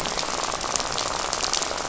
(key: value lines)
label: biophony, rattle
recorder: SoundTrap 500